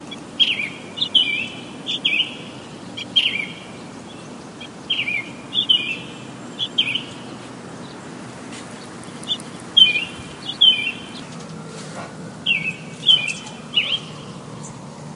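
A bird chirps rhythmically, adding a gentle and melodic touch to the environment. 0.1 - 15.2

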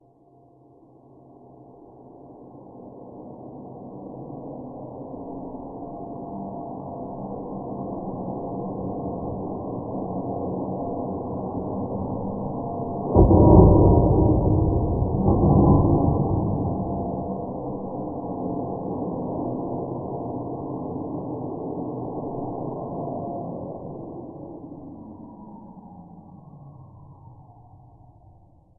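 White noise with a ringing undertone gradually increases in volume, reaches a peak, and then fades out. 0.0 - 28.7

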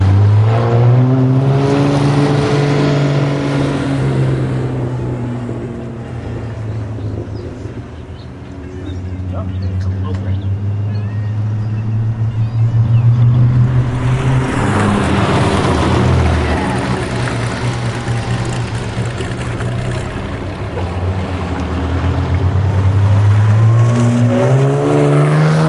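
An automobile engine is running. 0.0 - 9.3
Two people are speaking. 9.2 - 11.2
An engine of a vintage race car is revving. 10.9 - 25.7

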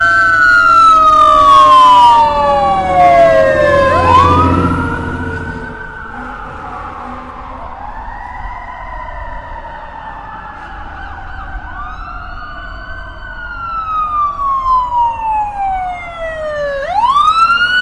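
A police car siren blares nearby. 0.0 - 5.0
Ambulance sirens passing nearby. 0.0 - 5.0
A police car siren blares in the distance. 5.2 - 13.6
The siren of a police car is approaching. 5.2 - 13.6
A police car siren blares nearby. 13.6 - 17.7
A police siren passing nearby. 13.6 - 17.7

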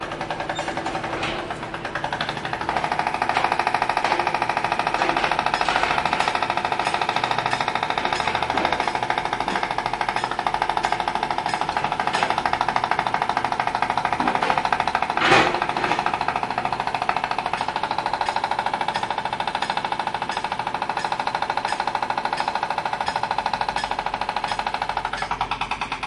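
A jackhammer is starting. 0.0 - 2.7
Someone hits something. 0.6 - 1.7
A jackhammer is operating continuously. 2.7 - 25.0
Someone hits something. 3.3 - 12.9
Someone hits something. 14.1 - 16.3
Someone hits something. 17.5 - 26.1
A jackhammer shuts down. 25.0 - 26.1

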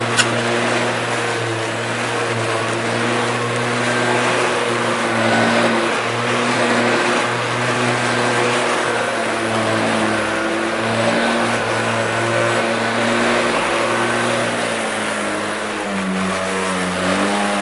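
A lawn mower is running outside. 0.0 - 17.6

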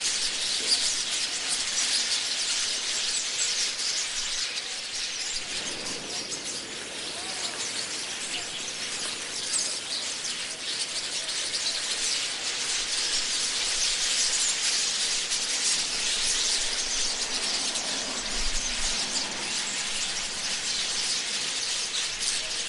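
A giant flock of various birds making noises in a forest. 0.0 - 22.6

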